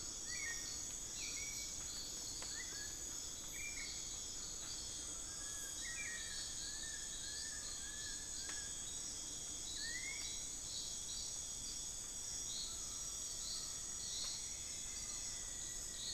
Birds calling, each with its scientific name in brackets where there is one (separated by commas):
Long-billed Woodcreeper (Nasica longirostris), Black-billed Thrush (Turdus ignobilis), Buckley's Forest-Falcon (Micrastur buckleyi), Rufous-fronted Antthrush (Formicarius rufifrons)